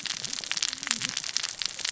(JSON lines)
{"label": "biophony, cascading saw", "recorder": "SoundTrap 600 or HydroMoth"}